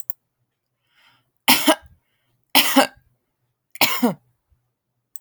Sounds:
Cough